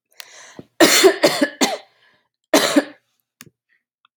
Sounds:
Throat clearing